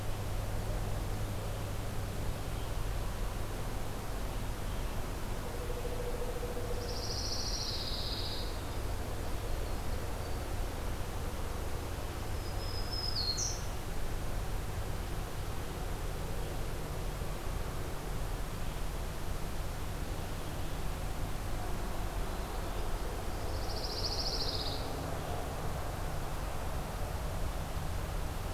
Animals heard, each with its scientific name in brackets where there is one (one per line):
Black-throated Green Warbler (Setophaga virens)
Pine Warbler (Setophaga pinus)
Pileated Woodpecker (Dryocopus pileatus)